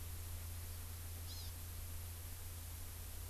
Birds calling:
Hawaii Amakihi (Chlorodrepanis virens)

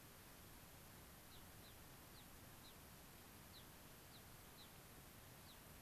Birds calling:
Gray-crowned Rosy-Finch (Leucosticte tephrocotis)

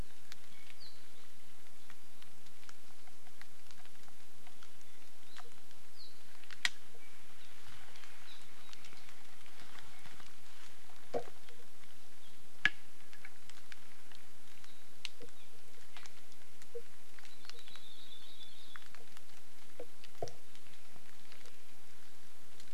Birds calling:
Apapane (Himatione sanguinea), Hawaii Creeper (Loxops mana)

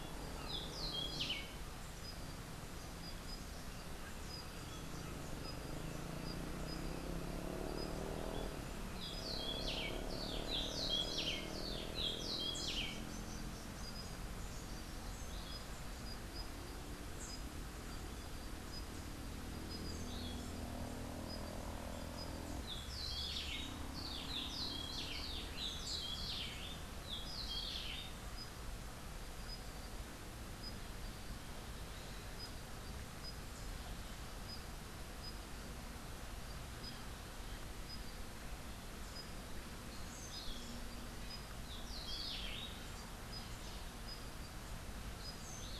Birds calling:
Rufous-breasted Wren (Pheugopedius rutilus)

